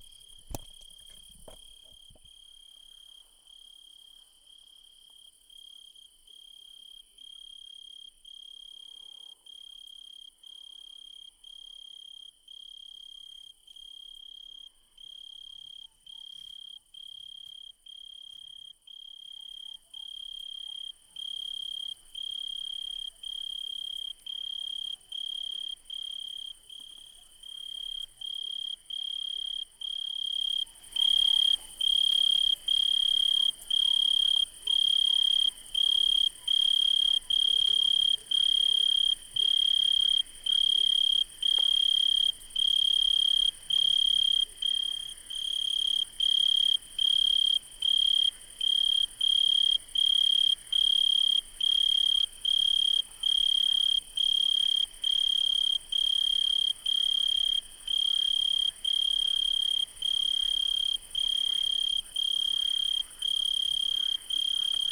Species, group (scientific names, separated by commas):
Oecanthus pellucens, Orthoptera